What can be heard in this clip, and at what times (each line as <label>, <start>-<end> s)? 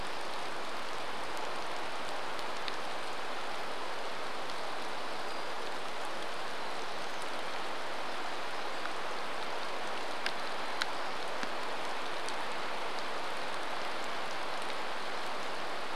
rain, 0-16 s
Hermit Thrush song, 4-6 s
unidentified sound, 6-10 s
Hermit Thrush song, 10-12 s